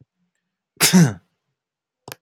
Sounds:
Sneeze